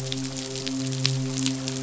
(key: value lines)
label: biophony, midshipman
recorder: SoundTrap 500